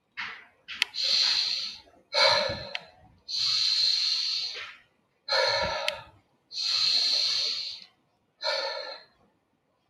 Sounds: Sigh